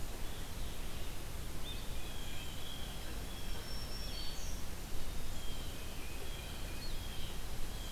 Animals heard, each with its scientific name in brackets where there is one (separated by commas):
Tufted Titmouse (Baeolophus bicolor), Winter Wren (Troglodytes hiemalis), Blue Jay (Cyanocitta cristata), Red-eyed Vireo (Vireo olivaceus), Black-throated Green Warbler (Setophaga virens)